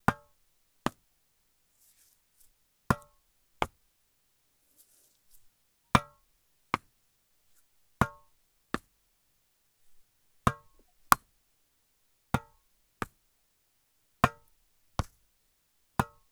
are there two different kinds of impact noises?
yes